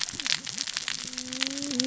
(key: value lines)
label: biophony, cascading saw
recorder: SoundTrap 600 or HydroMoth